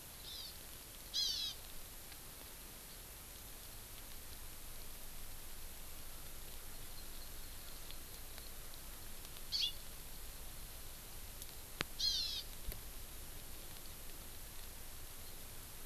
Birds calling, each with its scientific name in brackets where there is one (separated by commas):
Hawaiian Hawk (Buteo solitarius), Hawaii Amakihi (Chlorodrepanis virens)